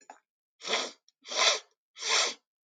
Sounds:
Sniff